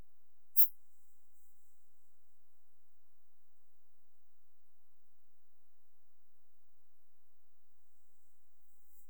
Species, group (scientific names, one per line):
Steropleurus andalusius
Orthoptera